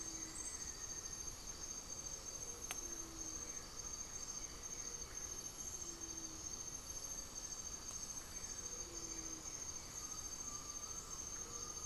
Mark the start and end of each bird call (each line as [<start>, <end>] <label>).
[0.00, 1.34] Great Antshrike (Taraba major)
[0.00, 11.86] Blue-gray Saltator (Saltator coerulescens)
[0.00, 11.86] Gray-fronted Dove (Leptotila rufaxilla)
[10.04, 11.84] Undulated Tinamou (Crypturellus undulatus)